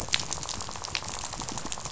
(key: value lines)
label: biophony, rattle
recorder: SoundTrap 500